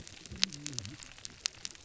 {"label": "biophony, whup", "recorder": "SoundTrap 300"}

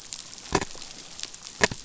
{"label": "biophony", "recorder": "SoundTrap 500"}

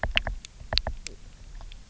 {"label": "biophony, knock", "recorder": "SoundTrap 300"}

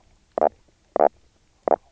{"label": "biophony, knock croak", "recorder": "SoundTrap 300"}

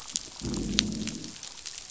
{"label": "biophony, growl", "recorder": "SoundTrap 500"}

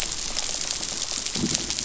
{"label": "biophony", "recorder": "SoundTrap 500"}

